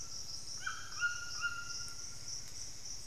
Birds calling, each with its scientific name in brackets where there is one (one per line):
White-throated Toucan (Ramphastos tucanus)
Plumbeous Antbird (Myrmelastes hyperythrus)